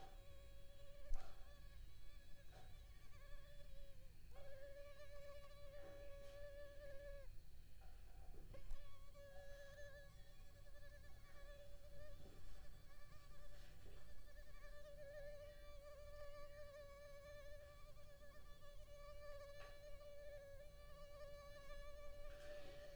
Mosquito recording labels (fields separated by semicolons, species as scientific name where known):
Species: Culex pipiens complex; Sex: female; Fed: unfed; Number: one; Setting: cup